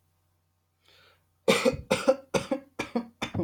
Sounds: Cough